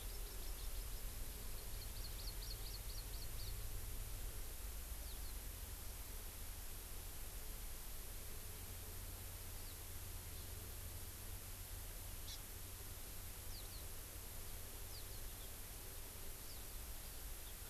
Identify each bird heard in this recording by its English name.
Hawaii Amakihi, House Finch